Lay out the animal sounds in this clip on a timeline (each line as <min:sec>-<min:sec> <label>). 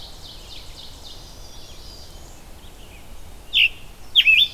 0:00.0-0:01.5 Ovenbird (Seiurus aurocapilla)
0:00.3-0:04.5 Red-eyed Vireo (Vireo olivaceus)
0:01.1-0:02.1 Chestnut-sided Warbler (Setophaga pensylvanica)
0:01.1-0:02.5 Black-throated Green Warbler (Setophaga virens)
0:01.4-0:02.3 Black-capped Chickadee (Poecile atricapillus)
0:03.4-0:04.5 Scarlet Tanager (Piranga olivacea)
0:04.0-0:04.5 Chestnut-sided Warbler (Setophaga pensylvanica)